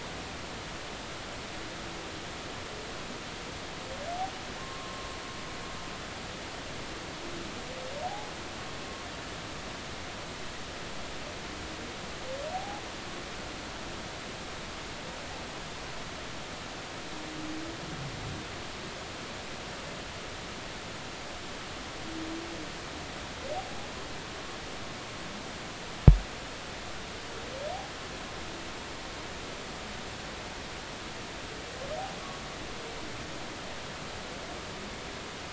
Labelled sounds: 4.6	5.1	humpback whale, 0.96 to 1.3 kHz
8.0	8.3	humpback whale, 0.80 to 0.90 kHz
12.5	12.8	humpback whale, 0.80 to 0.86 kHz

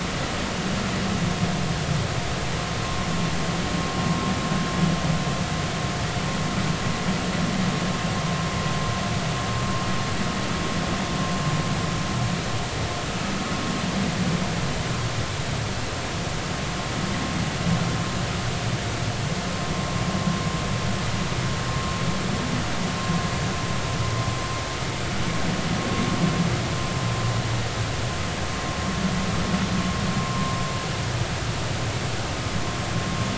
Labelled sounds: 30.3	30.5	vessel noise, 0.93 to 1.1 kHz

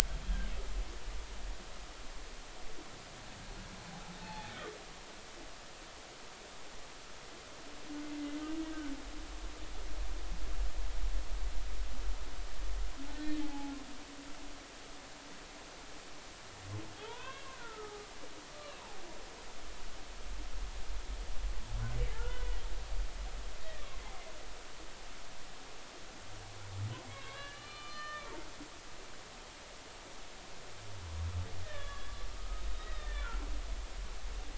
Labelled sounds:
0.2	0.5	humpback whale, 1.5 to 1.7 kHz
4.2	4.5	humpback whale, 0.80 to 4.4 kHz
8.2	8.4	humpback whale, 2.0 to 2.1 kHz
8.7	8.9	humpback whale, 1.4 to 1.6 kHz
13.1	13.7	humpback whale, 0.80 to 4.0 kHz
17.0	18.1	humpback whale, 0.80 to 3.7 kHz
18.5	18.8	humpback whale, 1.1 to 1.2 kHz
22.1	22.6	humpback whale, 1.3 to 2.0 kHz
27.1	28.2	humpback whale, 1.0 to 4.3 kHz
31.6	33.3	humpback whale, 1.1 to 3.9 kHz

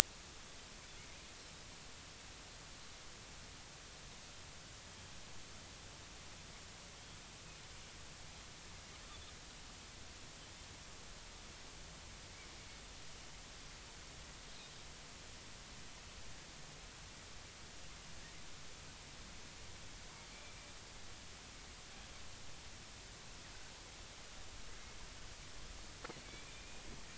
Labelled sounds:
26.5	26.8	Pacific white-sided dolphin, 2.3 to 2.5 kHz

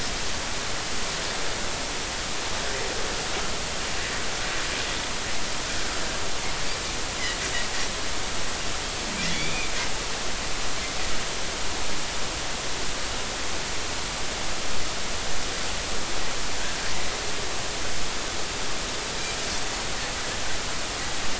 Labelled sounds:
9.3	9.7	Pacific white-sided dolphin, 2.0 to 3.6 kHz

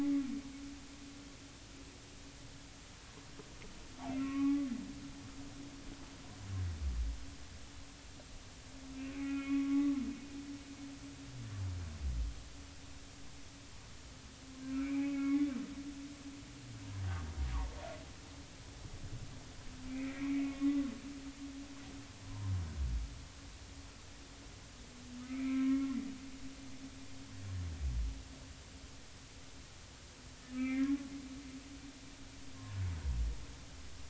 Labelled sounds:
4.2	4.7	humpback whale, 1.0 to 2.7 kHz
8.9	9.9	humpback whale, 1.1 to 2.8 kHz
14.8	15.5	humpback whale, 1.1 to 2.6 kHz
19.9	20.8	humpback whale, 1.1 to 2.6 kHz
22.2	22.5	humpback whale, 0.90 to 1.1 kHz
25.2	25.9	humpback whale, 0.99 to 2.7 kHz
30.5	30.9	humpback whale, 2.0 to 2.4 kHz

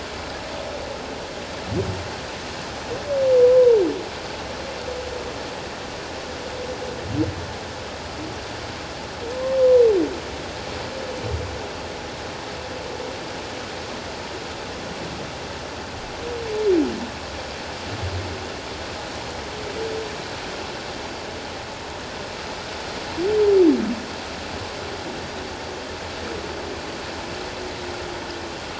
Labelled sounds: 3.4	3.8	humpback whale, 0.84 to 1.1 kHz
9.6	9.8	humpback whale, 0.94 to 1.1 kHz

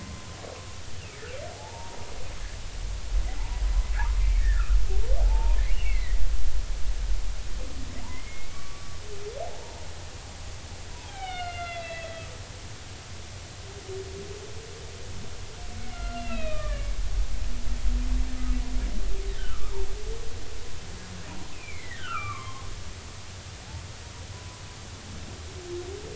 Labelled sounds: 1.5	2.0	humpback whale, 0.80 to 0.99 kHz
4.2	4.6	humpback whale, 1.6 to 2.4 kHz
5.2	6.2	humpback whale, 0.80 to 3.0 kHz
8.1	9.0	humpback whale, 1.1 to 2.3 kHz
9.4	9.9	humpback whale, 0.80 to 0.99 kHz
10.9	12.2	humpback whale, 0.80 to 4.4 kHz
15.9	16.9	humpback whale, 1.1 to 3.9 kHz
19.4	19.7	humpback whale, 1.1 to 1.6 kHz
21.5	22.7	humpback whale, 0.96 to 2.7 kHz
24.3	24.6	humpback whale, 0.96 to 1.1 kHz

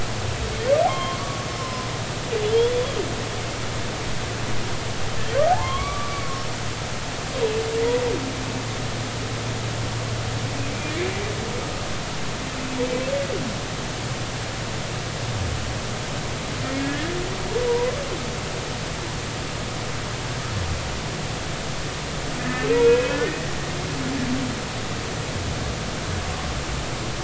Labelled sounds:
0.9	1.9	humpback whale, 0.99 to 3.3 kHz
2.5	2.9	humpback whale, 3.0 to 3.5 kHz
5.5	6.4	humpback whale, 0.80 to 3.4 kHz
10.7	11.0	humpback whale, 2.2 to 2.5 kHz
16.8	17.2	humpback whale, 1.6 to 1.9 kHz
17.7	17.9	humpback whale, 0.90 to 1.1 kHz
22.4	23.4	humpback whale, 1.7 to 2.8 kHz

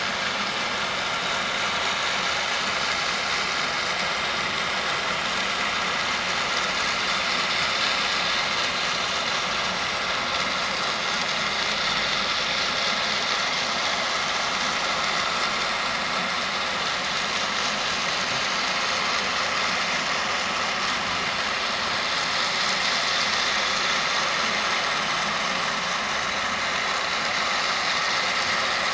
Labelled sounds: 8.8	9.1	vessel noise, 5.6 to 5.8 kHz
24.8	25.1	vessel noise, 7.6 to 7.8 kHz

